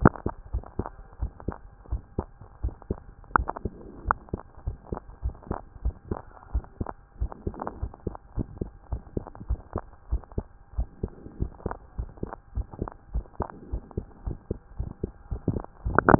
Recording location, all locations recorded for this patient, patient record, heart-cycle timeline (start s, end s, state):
tricuspid valve (TV)
aortic valve (AV)+pulmonary valve (PV)+tricuspid valve (TV)+tricuspid valve (TV)+mitral valve (MV)
#Age: Child
#Sex: Female
#Height: 135.0 cm
#Weight: 33.5 kg
#Pregnancy status: False
#Murmur: Absent
#Murmur locations: nan
#Most audible location: nan
#Systolic murmur timing: nan
#Systolic murmur shape: nan
#Systolic murmur grading: nan
#Systolic murmur pitch: nan
#Systolic murmur quality: nan
#Diastolic murmur timing: nan
#Diastolic murmur shape: nan
#Diastolic murmur grading: nan
#Diastolic murmur pitch: nan
#Diastolic murmur quality: nan
#Outcome: Normal
#Campaign: 2014 screening campaign
0.00	0.12	S1
0.12	0.24	systole
0.24	0.34	S2
0.34	0.52	diastole
0.52	0.64	S1
0.64	0.78	systole
0.78	0.88	S2
0.88	1.20	diastole
1.20	1.32	S1
1.32	1.46	systole
1.46	1.56	S2
1.56	1.90	diastole
1.90	2.02	S1
2.02	2.16	systole
2.16	2.26	S2
2.26	2.62	diastole
2.62	2.74	S1
2.74	2.88	systole
2.88	2.98	S2
2.98	3.36	diastole
3.36	3.48	S1
3.48	3.64	systole
3.64	3.72	S2
3.72	4.06	diastole
4.06	4.18	S1
4.18	4.32	systole
4.32	4.42	S2
4.42	4.66	diastole
4.66	4.76	S1
4.76	4.90	systole
4.90	5.00	S2
5.00	5.24	diastole
5.24	5.34	S1
5.34	5.50	systole
5.50	5.58	S2
5.58	5.84	diastole
5.84	5.94	S1
5.94	6.10	systole
6.10	6.20	S2
6.20	6.52	diastole
6.52	6.64	S1
6.64	6.80	systole
6.80	6.88	S2
6.88	7.20	diastole
7.20	7.32	S1
7.32	7.46	systole
7.46	7.54	S2
7.54	7.80	diastole
7.80	7.92	S1
7.92	8.06	systole
8.06	8.16	S2
8.16	8.36	diastole
8.36	8.48	S1
8.48	8.60	systole
8.60	8.70	S2
8.70	8.90	diastole
8.90	9.02	S1
9.02	9.16	systole
9.16	9.24	S2
9.24	9.48	diastole
9.48	9.60	S1
9.60	9.74	systole
9.74	9.84	S2
9.84	10.10	diastole
10.10	10.22	S1
10.22	10.36	systole
10.36	10.46	S2
10.46	10.76	diastole
10.76	10.88	S1
10.88	11.02	systole
11.02	11.12	S2
11.12	11.40	diastole
11.40	11.52	S1
11.52	11.66	systole
11.66	11.74	S2
11.74	11.98	diastole
11.98	12.10	S1
12.10	12.22	systole
12.22	12.32	S2
12.32	12.56	diastole
12.56	12.66	S1
12.66	12.80	systole
12.80	12.90	S2
12.90	13.14	diastole
13.14	13.24	S1
13.24	13.38	systole
13.38	13.48	S2
13.48	13.72	diastole
13.72	13.82	S1
13.82	13.96	systole
13.96	14.06	S2
14.06	14.26	diastole
14.26	14.38	S1
14.38	14.50	systole
14.50	14.58	S2
14.58	14.78	diastole
14.78	14.90	S1
14.90	15.02	systole
15.02	15.12	S2
15.12	15.30	diastole
15.30	15.40	S1
15.40	15.50	systole
15.50	15.60	S2
15.60	15.82	diastole